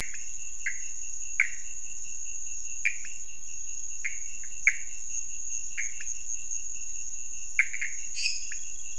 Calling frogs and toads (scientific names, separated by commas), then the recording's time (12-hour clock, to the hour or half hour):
Pithecopus azureus, Leptodactylus podicipinus, Dendropsophus minutus
1:30am